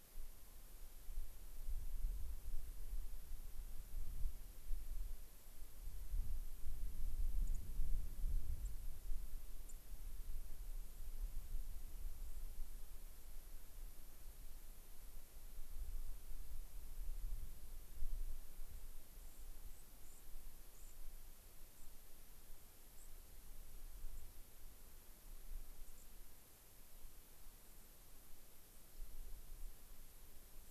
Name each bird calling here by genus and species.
Junco hyemalis, Zonotrichia leucophrys